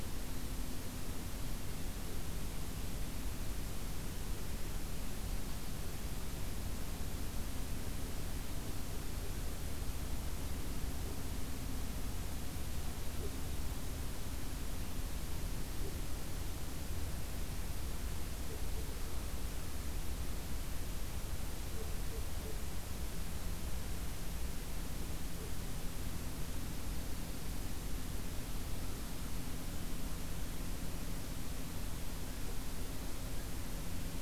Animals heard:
forest ambience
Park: Acadia National Park